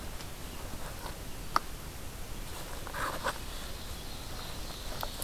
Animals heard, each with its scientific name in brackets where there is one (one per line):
Ovenbird (Seiurus aurocapilla)